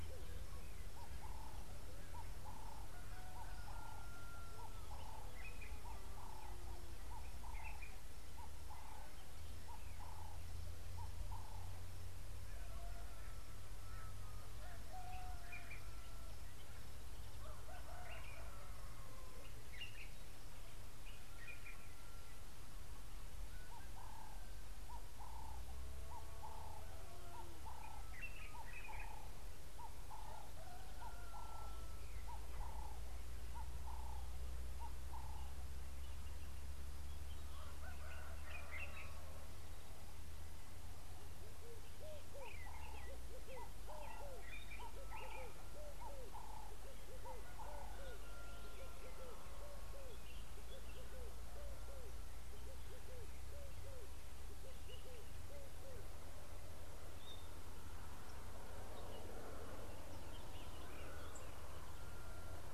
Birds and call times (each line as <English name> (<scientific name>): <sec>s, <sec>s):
Ring-necked Dove (Streptopelia capicola): 6.4s, 29.8s, 46.5s
Common Bulbul (Pycnonotus barbatus): 28.7s
Red-eyed Dove (Streptopelia semitorquata): 42.1s, 53.1s
White-browed Robin-Chat (Cossypha heuglini): 57.3s